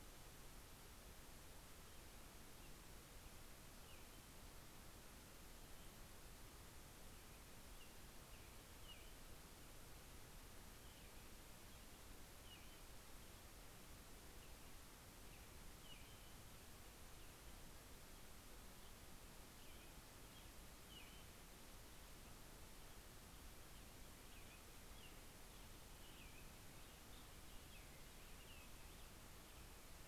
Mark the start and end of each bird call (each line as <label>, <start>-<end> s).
American Robin (Turdus migratorius), 1.2-5.3 s
American Robin (Turdus migratorius), 7.0-9.9 s
American Robin (Turdus migratorius), 11.0-17.3 s
American Robin (Turdus migratorius), 18.4-22.1 s
American Robin (Turdus migratorius), 23.5-29.6 s